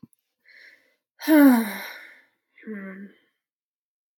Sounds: Sigh